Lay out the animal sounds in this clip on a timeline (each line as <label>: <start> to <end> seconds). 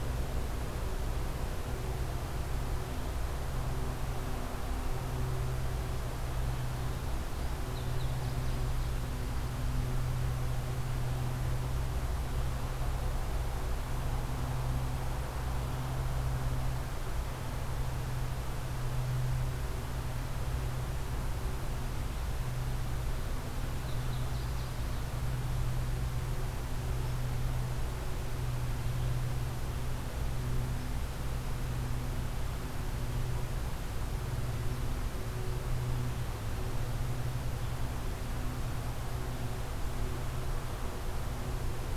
Indigo Bunting (Passerina cyanea): 7.5 to 8.9 seconds
Indigo Bunting (Passerina cyanea): 23.6 to 25.0 seconds